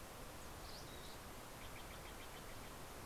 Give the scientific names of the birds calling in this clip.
Poecile gambeli, Cyanocitta stelleri